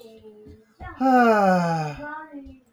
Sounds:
Sigh